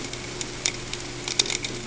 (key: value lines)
label: ambient
recorder: HydroMoth